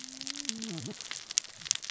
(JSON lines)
{"label": "biophony, cascading saw", "recorder": "SoundTrap 600 or HydroMoth"}